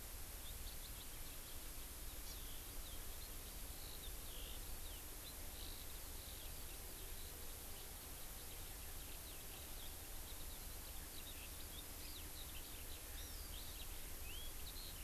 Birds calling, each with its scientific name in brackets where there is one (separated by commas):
Hawaii Amakihi (Chlorodrepanis virens), Eurasian Skylark (Alauda arvensis)